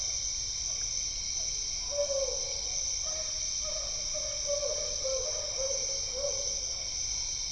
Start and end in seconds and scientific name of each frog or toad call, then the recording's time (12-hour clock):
0.0	1.6	Physalaemus cuvieri
7:30pm